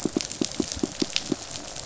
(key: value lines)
label: biophony, pulse
recorder: SoundTrap 500